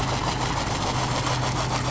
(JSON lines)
{"label": "anthrophony, boat engine", "recorder": "SoundTrap 500"}